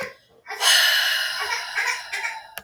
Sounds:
Sigh